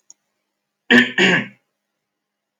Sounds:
Throat clearing